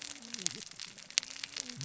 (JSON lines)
{"label": "biophony, cascading saw", "recorder": "SoundTrap 600 or HydroMoth"}